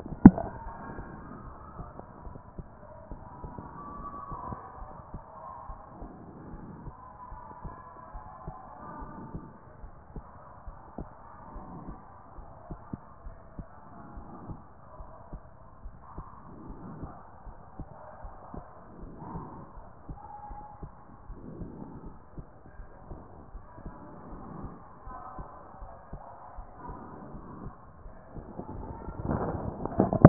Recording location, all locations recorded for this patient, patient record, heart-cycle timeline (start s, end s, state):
pulmonary valve (PV)
pulmonary valve (PV)+tricuspid valve (TV)+mitral valve (MV)
#Age: nan
#Sex: Female
#Height: nan
#Weight: nan
#Pregnancy status: True
#Murmur: Absent
#Murmur locations: nan
#Most audible location: nan
#Systolic murmur timing: nan
#Systolic murmur shape: nan
#Systolic murmur grading: nan
#Systolic murmur pitch: nan
#Systolic murmur quality: nan
#Diastolic murmur timing: nan
#Diastolic murmur shape: nan
#Diastolic murmur grading: nan
#Diastolic murmur pitch: nan
#Diastolic murmur quality: nan
#Outcome: Normal
#Campaign: 2014 screening campaign
0.00	7.88	unannotated
7.88	8.14	diastole
8.14	8.24	S1
8.24	8.46	systole
8.46	8.54	S2
8.54	9.02	diastole
9.02	9.12	S1
9.12	9.34	systole
9.34	9.42	S2
9.42	9.82	diastole
9.82	9.92	S1
9.92	10.14	systole
10.14	10.24	S2
10.24	10.66	diastole
10.66	10.78	S1
10.78	10.98	systole
10.98	11.08	S2
11.08	11.56	diastole
11.56	11.66	S1
11.66	11.86	systole
11.86	11.96	S2
11.96	12.38	diastole
12.38	12.48	S1
12.48	12.68	systole
12.68	12.78	S2
12.78	13.24	diastole
13.24	13.36	S1
13.36	13.58	systole
13.58	13.66	S2
13.66	14.16	diastole
14.16	14.26	S1
14.26	14.46	systole
14.46	14.58	S2
14.58	15.00	diastole
15.00	15.10	S1
15.10	15.32	systole
15.32	15.40	S2
15.40	15.84	diastole
15.84	15.96	S1
15.96	16.16	systole
16.16	16.26	S2
16.26	16.69	diastole
16.69	30.29	unannotated